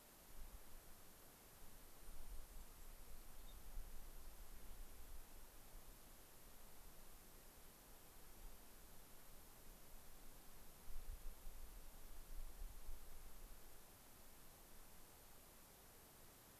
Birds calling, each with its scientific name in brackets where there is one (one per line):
unidentified bird
Cassin's Finch (Haemorhous cassinii)